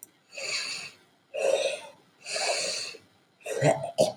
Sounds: Sigh